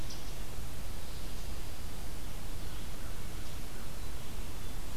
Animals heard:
American Crow (Corvus brachyrhynchos)

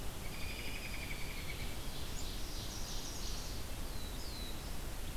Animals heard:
Black-throated Blue Warbler (Setophaga caerulescens)
Ovenbird (Seiurus aurocapilla)
Chestnut-sided Warbler (Setophaga pensylvanica)
American Robin (Turdus migratorius)

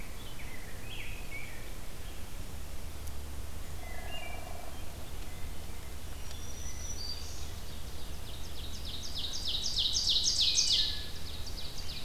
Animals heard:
Ovenbird (Seiurus aurocapilla)
Wood Thrush (Hylocichla mustelina)
Black-throated Green Warbler (Setophaga virens)
Rose-breasted Grosbeak (Pheucticus ludovicianus)
Hairy Woodpecker (Dryobates villosus)

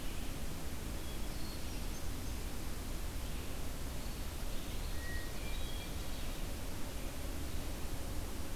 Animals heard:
Hermit Thrush (Catharus guttatus)
Red-eyed Vireo (Vireo olivaceus)
Ovenbird (Seiurus aurocapilla)

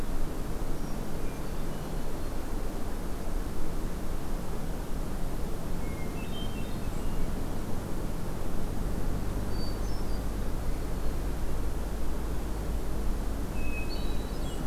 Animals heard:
Hermit Thrush (Catharus guttatus)
White-throated Sparrow (Zonotrichia albicollis)

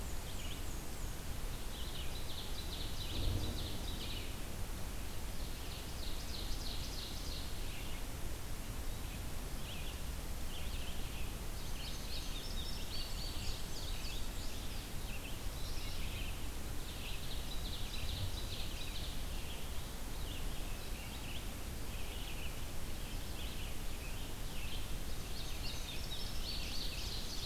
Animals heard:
Indigo Bunting (Passerina cyanea)
Red-eyed Vireo (Vireo olivaceus)
Ovenbird (Seiurus aurocapilla)
Mourning Warbler (Geothlypis philadelphia)
Black-and-white Warbler (Mniotilta varia)

